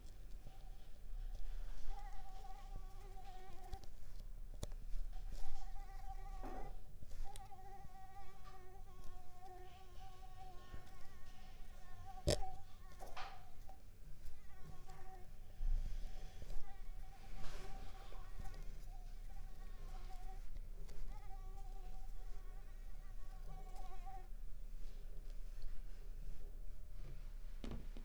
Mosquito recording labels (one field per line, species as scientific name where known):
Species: Mansonia uniformis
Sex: female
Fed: unfed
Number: one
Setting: cup